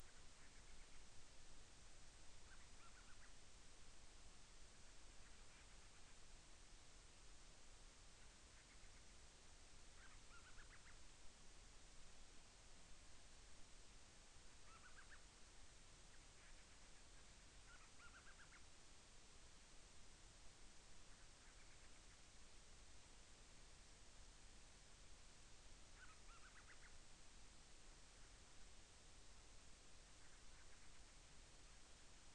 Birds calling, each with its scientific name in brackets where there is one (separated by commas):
Band-rumped Storm-Petrel (Hydrobates castro)